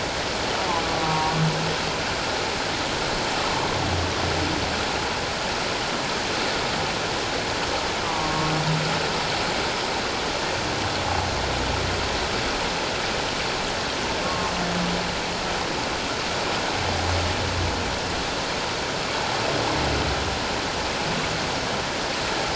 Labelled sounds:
1.0	1.4	humpback whale, 0.91 to 1.2 kHz
8.0	8.5	humpback whale, 1.0 to 1.2 kHz
14.2	14.5	humpback whale, 0.97 to 1.2 kHz

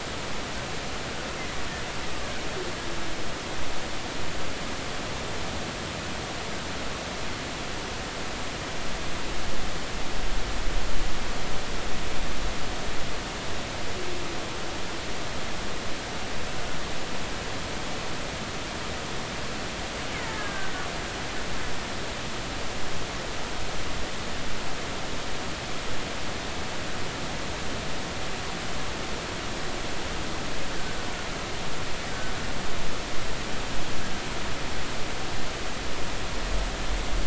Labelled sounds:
20.3	20.7	killer whale, Bigg's (transient), 1.5 to 1.8 kHz

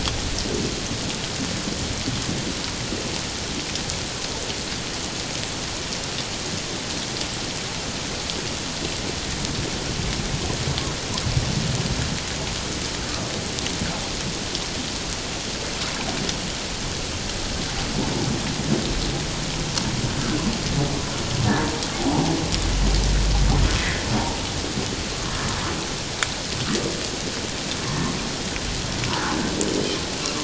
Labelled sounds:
23.8	24.1	humpback whale, 1.7 to 2.1 kHz

